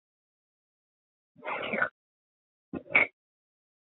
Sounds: Sniff